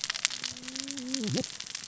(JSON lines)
{"label": "biophony, cascading saw", "recorder": "SoundTrap 600 or HydroMoth"}